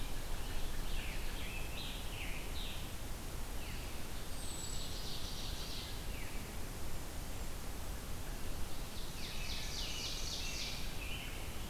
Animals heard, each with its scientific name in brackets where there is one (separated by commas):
Ovenbird (Seiurus aurocapilla), Wood Thrush (Hylocichla mustelina), American Robin (Turdus migratorius), Scarlet Tanager (Piranga olivacea)